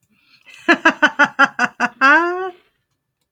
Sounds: Laughter